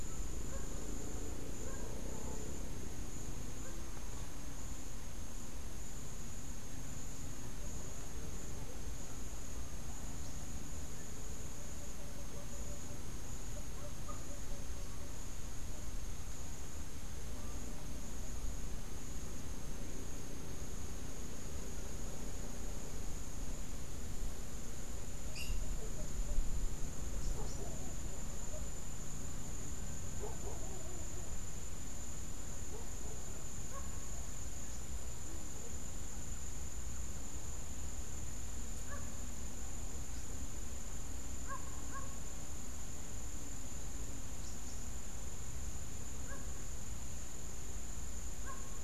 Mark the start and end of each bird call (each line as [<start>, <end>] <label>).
[27.01, 27.81] Rufous-capped Warbler (Basileuterus rufifrons)
[44.31, 44.91] Rufous-capped Warbler (Basileuterus rufifrons)